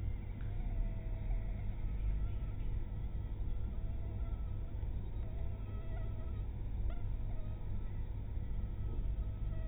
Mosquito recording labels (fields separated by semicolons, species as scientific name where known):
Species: mosquito; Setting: cup